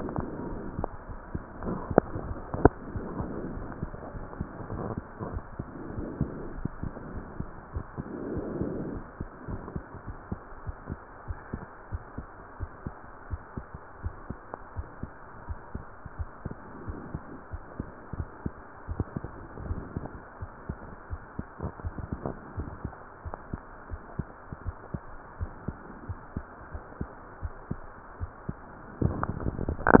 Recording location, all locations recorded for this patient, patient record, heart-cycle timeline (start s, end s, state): aortic valve (AV)
aortic valve (AV)+pulmonary valve (PV)+tricuspid valve (TV)+mitral valve (MV)
#Age: Child
#Sex: Female
#Height: 148.0 cm
#Weight: 61.0 kg
#Pregnancy status: False
#Murmur: Absent
#Murmur locations: nan
#Most audible location: nan
#Systolic murmur timing: nan
#Systolic murmur shape: nan
#Systolic murmur grading: nan
#Systolic murmur pitch: nan
#Systolic murmur quality: nan
#Diastolic murmur timing: nan
#Diastolic murmur shape: nan
#Diastolic murmur grading: nan
#Diastolic murmur pitch: nan
#Diastolic murmur quality: nan
#Outcome: Normal
#Campaign: 2015 screening campaign
0.16	0.40	diastole
0.40	0.58	S1
0.58	0.74	systole
0.74	0.88	S2
0.88	1.08	diastole
1.08	1.20	S1
1.20	1.32	systole
1.32	1.42	S2
1.42	1.66	diastole
1.66	1.82	S1
1.82	1.88	systole
1.88	1.98	S2
1.98	2.22	diastole
2.22	2.38	S1
2.38	2.52	systole
2.52	2.66	S2
2.66	2.94	diastole
2.94	3.06	S1
3.06	3.15	systole
3.15	3.29	S2
3.29	3.56	diastole
3.56	3.68	S1
3.68	3.80	systole
3.80	3.90	S2
3.90	4.14	diastole
4.14	4.28	S1
4.28	4.38	systole
4.38	4.48	S2
4.48	4.72	diastole
4.72	4.86	S1
4.86	4.96	systole
4.96	5.06	S2
5.06	5.30	diastole
5.30	5.44	S1
5.44	5.58	systole
5.58	5.68	S2
5.68	5.92	diastole
5.92	6.06	S1
6.06	6.18	systole
6.18	6.32	S2
6.32	6.54	diastole
6.54	6.66	S1
6.66	6.80	systole
6.80	6.94	S2
6.94	7.14	diastole
7.14	7.28	S1
7.28	7.38	systole
7.38	7.50	S2
7.50	7.74	diastole
7.74	7.84	S1
7.84	7.98	systole
7.98	8.06	S2
8.06	8.32	diastole
8.32	8.46	S1
8.46	8.58	systole
8.58	8.72	S2
8.72	8.92	diastole
8.92	9.04	S1
9.04	9.18	systole
9.18	9.28	S2
9.28	9.50	diastole
9.50	9.62	S1
9.62	9.74	systole
9.74	9.84	S2
9.84	10.05	diastole
10.05	10.18	S1
10.18	10.28	systole
10.28	10.40	S2
10.40	10.64	diastole
10.64	10.78	S1
10.78	10.90	systole
10.90	11.00	S2
11.00	11.28	diastole
11.28	11.40	S1
11.40	11.52	systole
11.52	11.62	S2
11.62	11.90	diastole
11.90	12.04	S1
12.04	12.16	systole
12.16	12.28	S2
12.28	12.58	diastole
12.58	12.72	S1
12.72	12.84	systole
12.84	12.96	S2
12.96	13.24	diastole
13.24	13.38	S1
13.38	13.56	systole
13.56	13.66	S2
13.66	14.00	diastole
14.00	14.14	S1
14.14	14.28	systole
14.28	14.40	S2
14.40	14.74	diastole
14.74	14.86	S1
14.86	15.00	systole
15.00	15.12	S2
15.12	15.46	diastole
15.46	15.60	S1
15.60	15.74	systole
15.74	15.84	S2
15.84	16.12	diastole
16.12	16.30	S1
16.30	16.44	systole
16.44	16.58	S2
16.58	16.86	diastole
16.86	17.00	S1
17.00	17.12	systole
17.12	17.22	S2
17.22	17.54	diastole
17.54	17.64	S1
17.64	17.76	systole
17.76	17.88	S2
17.88	18.12	diastole
18.12	18.28	S1
18.28	18.42	systole
18.42	18.56	S2
18.56	18.90	diastole
18.90	19.08	S1
19.08	19.22	systole
19.22	19.36	S2
19.36	19.62	diastole
19.62	19.80	S1
19.80	19.94	systole
19.94	20.10	S2
20.10	20.40	diastole
20.40	20.50	S1
20.50	20.66	systole
20.66	20.78	S2
20.78	21.08	diastole
21.08	21.22	S1
21.22	21.36	systole
21.36	21.46	S2
21.46	21.80	diastole
21.80	21.96	S1
21.96	22.10	systole
22.10	22.24	S2
22.24	22.56	diastole
22.56	22.68	S1
22.68	22.82	systole
22.82	22.92	S2
22.92	23.24	diastole
23.24	23.38	S1
23.38	23.52	systole
23.52	23.62	S2
23.62	23.88	diastole
23.88	24.02	S1
24.02	24.16	systole
24.16	24.26	S2
24.26	24.60	diastole
24.60	24.78	S1
24.78	24.90	systole
24.90	25.04	S2
25.04	25.38	diastole
25.38	25.50	S1
25.50	25.64	systole
25.64	25.76	S2
25.76	26.04	diastole
26.04	26.18	S1
26.18	26.32	systole
26.32	26.44	S2
26.44	26.70	diastole
26.70	26.82	S1
26.82	26.98	systole
26.98	27.08	S2
27.08	27.36	diastole
27.36	27.54	S1
27.54	27.68	systole
27.68	27.81	S2
27.81	28.18	diastole
28.18	28.32	S1
28.32	28.44	systole
28.44	28.58	S2
28.58	28.96	diastole